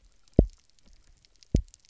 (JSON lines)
{"label": "biophony, double pulse", "recorder": "SoundTrap 300"}